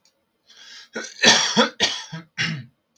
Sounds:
Cough